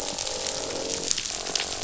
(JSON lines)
{"label": "biophony, croak", "recorder": "SoundTrap 500"}